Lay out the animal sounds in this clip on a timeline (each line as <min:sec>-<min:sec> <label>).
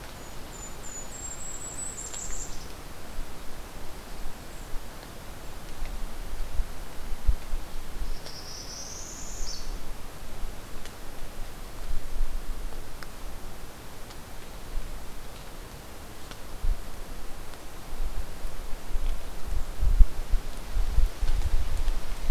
0:00.0-0:02.7 Golden-crowned Kinglet (Regulus satrapa)
0:08.0-0:09.7 Northern Parula (Setophaga americana)